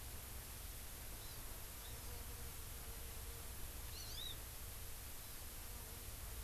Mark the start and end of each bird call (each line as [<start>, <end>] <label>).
[1.08, 1.48] Hawaii Amakihi (Chlorodrepanis virens)
[1.78, 2.28] Hawaii Amakihi (Chlorodrepanis virens)
[3.88, 4.38] Hawaii Amakihi (Chlorodrepanis virens)
[5.18, 5.48] Hawaii Amakihi (Chlorodrepanis virens)